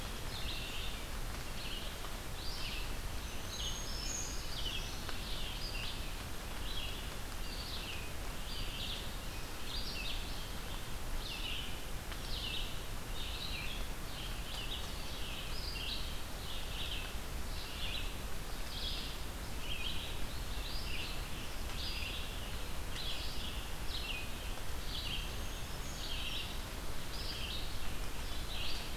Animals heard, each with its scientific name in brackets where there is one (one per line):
Black-throated Green Warbler (Setophaga virens)
Northern Parula (Setophaga americana)
Red-eyed Vireo (Vireo olivaceus)